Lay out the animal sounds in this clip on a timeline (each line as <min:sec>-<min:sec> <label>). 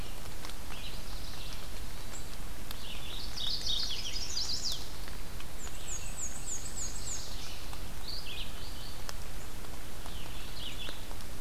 0:00.6-0:01.8 Yellow-rumped Warbler (Setophaga coronata)
0:00.7-0:11.4 Red-eyed Vireo (Vireo olivaceus)
0:01.8-0:02.5 Hermit Thrush (Catharus guttatus)
0:03.0-0:04.1 Mourning Warbler (Geothlypis philadelphia)
0:03.7-0:04.8 Chestnut-sided Warbler (Setophaga pensylvanica)
0:05.5-0:07.5 Black-and-white Warbler (Mniotilta varia)
0:06.3-0:07.6 Yellow-rumped Warbler (Setophaga coronata)